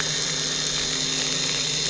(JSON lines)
{"label": "anthrophony, boat engine", "recorder": "SoundTrap 300"}